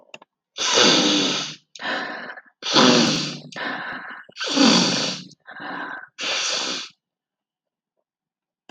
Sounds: Sniff